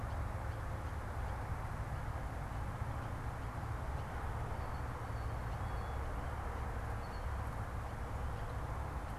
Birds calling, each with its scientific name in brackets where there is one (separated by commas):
Red-winged Blackbird (Agelaius phoeniceus), Blue Jay (Cyanocitta cristata)